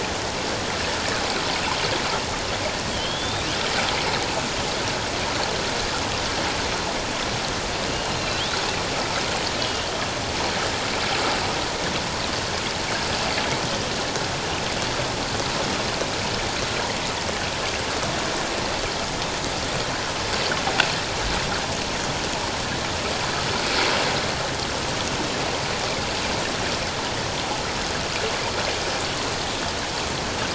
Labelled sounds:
2.9	3.5	killer whale, northern resident, A clan, AB subclan, 3.0 to 4.0 kHz
7.9	8.4	killer whale, northern resident, A clan, AB subclan, 2.6 to 4.3 kHz
9.6	9.9	killer whale, northern resident, A clan, AB subclan, 2.8 to 3.4 kHz

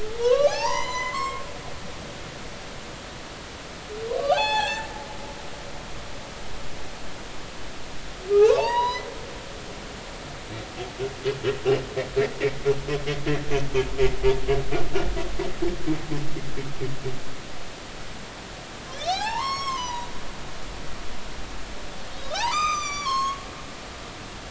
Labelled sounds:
0.2	1.4	humpback whale, 0.80 to 8.0 kHz
4.1	4.9	humpback whale, 0.80 to 7.0 kHz
8.3	9.1	humpback whale, 0.80 to 5.2 kHz
14.9	15.2	humpback whale, 1.4 to 1.6 kHz
18.9	20.1	humpback whale, 0.80 to 7.7 kHz
22.3	23.4	humpback whale, 0.80 to 8.0 kHz

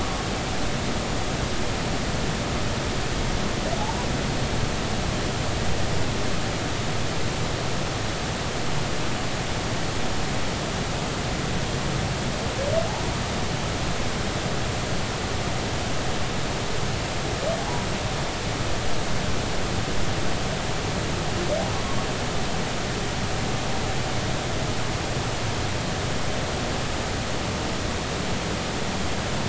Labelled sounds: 0.0	0.2	humpback whale, 1.0 to 1.2 kHz
17.6	17.9	humpback whale, 0.80 to 0.99 kHz

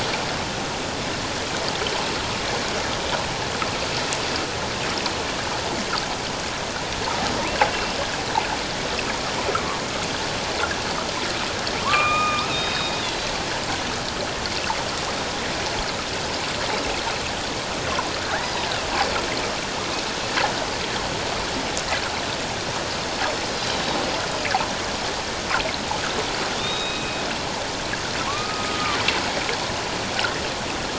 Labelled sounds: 9.5	9.8	killer whale, northern resident, A clan, AB subclan, 1.0 to 1.5 kHz
11.8	13.3	killer whale, northern resident, A clan, AB subclan, 0.88 to 4.2 kHz
18.2	18.5	killer whale, northern resident, A clan, AB subclan, 1.3 to 2.0 kHz
26.6	27.2	killer whale, northern resident, A clan, AB subclan, 2.4 to 5.1 kHz
28.2	29.0	killer whale, northern resident, A clan, AB subclan, 0.94 to 1.3 kHz

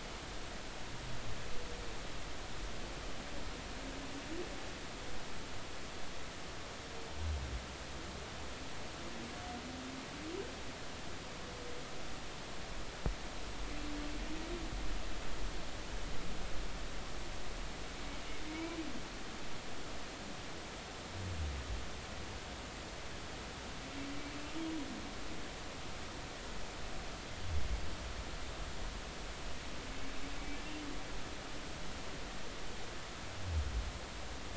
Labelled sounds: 18.5	18.8	humpback whale, 2.1 to 2.4 kHz

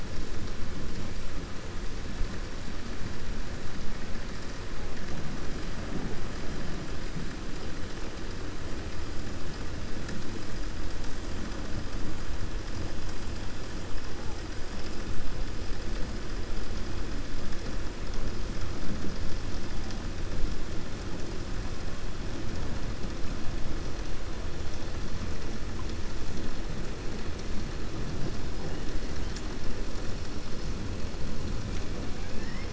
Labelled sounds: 32.1	32.7	killer whale, 1.1 to 3.0 kHz

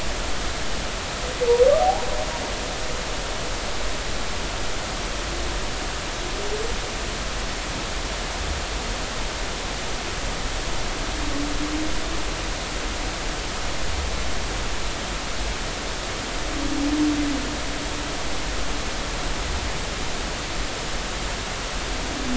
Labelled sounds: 1.8	2.1	humpback whale, 0.80 to 0.99 kHz

